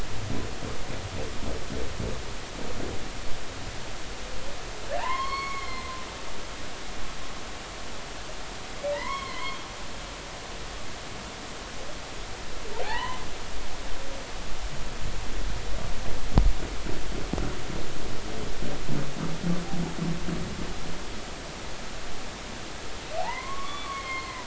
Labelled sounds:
4.9	6.0	humpback whale, 0.80 to 4.5 kHz
8.9	9.6	humpback whale, 0.86 to 5.5 kHz
12.8	13.2	humpback whale, 0.80 to 3.1 kHz
23.2	24.4	humpback whale, 0.80 to 4.3 kHz

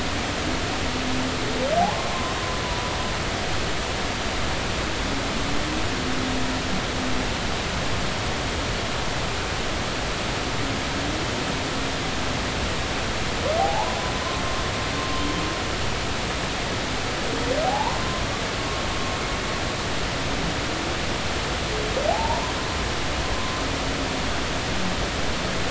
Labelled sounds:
1.8	2.4	humpback whale, 0.80 to 1.1 kHz
2.6	2.9	humpback whale, 0.93 to 1.0 kHz
13.6	14.0	humpback whale, 0.80 to 1.1 kHz
17.6	18.2	humpback whale, 0.80 to 1.1 kHz
22.1	22.5	humpback whale, 0.80 to 1.1 kHz

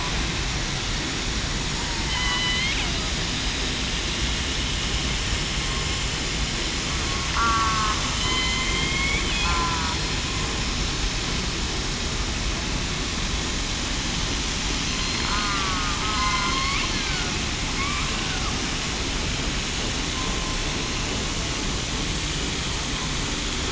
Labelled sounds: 2.1	2.7	killer whale, southern resident, 1.9 to 4.3 kHz
7.3	8.5	killer whale, southern resident, 1.0 to 4.1 kHz
9.4	9.9	killer whale, southern resident, 0.94 to 1.4 kHz
14.9	15.5	killer whale, southern resident, 4.1 to 4.3 kHz
16.0	16.4	killer whale, southern resident, 1.2 to 1.3 kHz
16.9	17.3	killer whale, southern resident, 1.4 to 1.8 kHz
18.1	18.5	killer whale, southern resident, 1.2 to 1.6 kHz

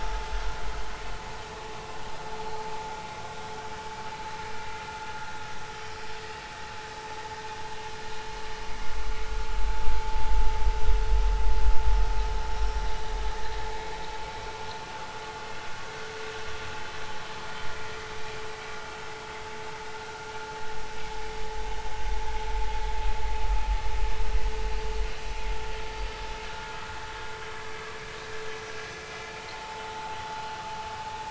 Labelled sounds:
26.5	26.8	vessel noise, 1.4 to 1.5 kHz
29.5	30.2	vessel noise, 0.80 to 0.99 kHz

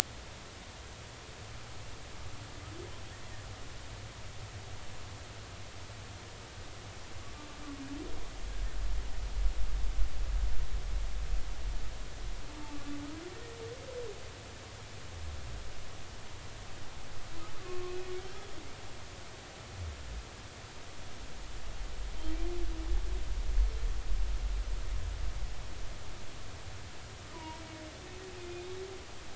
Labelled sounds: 12.5	13.0	humpback whale, 0.83 to 1.2 kHz
17.6	18.0	humpback whale, 1.0 to 1.3 kHz
27.3	27.6	humpback whale, 0.90 to 1.1 kHz

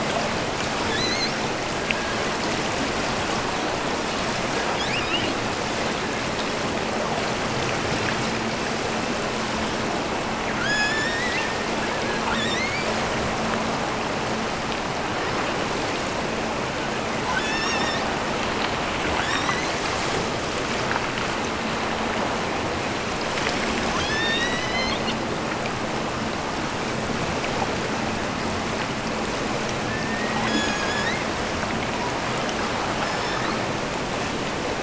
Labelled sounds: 0.7	1.5	killer whale, offshore, 1.2 to 6.6 kHz
4.7	5.4	killer whale, offshore, 1.8 to 5.6 kHz
10.5	11.6	killer whale, offshore, 1.2 to 8.0 kHz
12.2	13.1	killer whale, offshore, 0.89 to 8.0 kHz
17.3	18.1	killer whale, offshore, 1.4 to 8.0 kHz
19.1	19.9	killer whale, offshore, 1.3 to 8.0 kHz
23.9	25.2	killer whale, offshore, 1.3 to 6.5 kHz
29.8	31.2	killer whale, offshore, 1.6 to 8.0 kHz
32.9	33.7	killer whale, offshore, 0.96 to 5.5 kHz

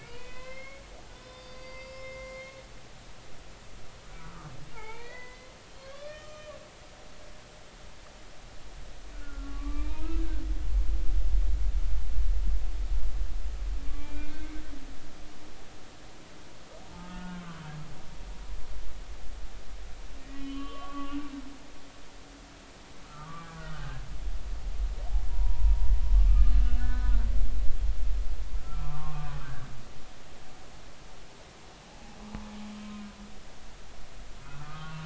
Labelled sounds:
0.0	2.6	humpback whale, 0.90 to 5.4 kHz
4.1	6.5	humpback whale, 0.80 to 4.6 kHz
7.1	7.5	humpback whale, 6.0 to 6.1 kHz
9.1	10.4	humpback whale, 0.86 to 2.5 kHz
14.0	14.5	humpback whale, 1.4 to 2.5 kHz
17.1	17.4	humpback whale, 1.4 to 1.5 kHz
20.2	21.2	humpback whale, 1.1 to 3.2 kHz
23.0	24.0	humpback whale, 1.1 to 1.7 kHz
25.3	25.7	humpback whale, 0.90 to 1.0 kHz
26.3	27.1	humpback whale, 1.2 to 1.8 kHz
28.6	29.6	humpback whale, 0.83 to 1.7 kHz
34.4	35.0	humpback whale, 1.1 to 1.5 kHz

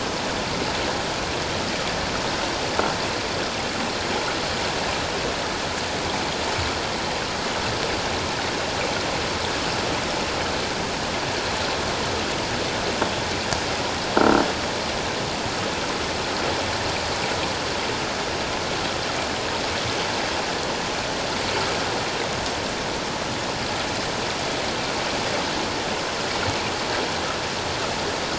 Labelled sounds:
14.2	14.4	croaking sound likely from a nearby submerged object, 1.3 to 1.6 kHz

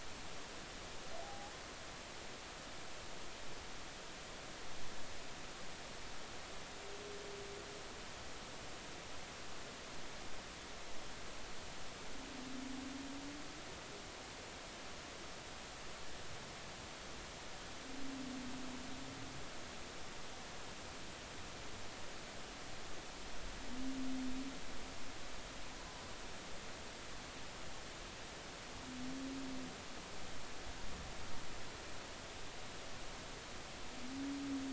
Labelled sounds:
1.2	1.5	humpback whale, 0.80 to 0.90 kHz

